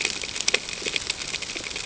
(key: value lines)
label: ambient
recorder: HydroMoth